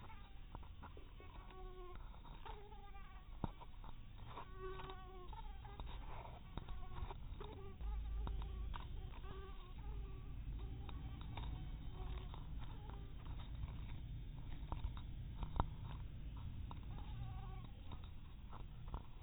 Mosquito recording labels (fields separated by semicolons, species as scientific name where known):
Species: mosquito; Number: one; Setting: cup